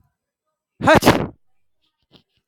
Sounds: Sneeze